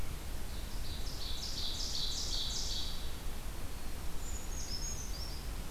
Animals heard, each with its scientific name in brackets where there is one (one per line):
Brown Creeper (Certhia americana)
Ovenbird (Seiurus aurocapilla)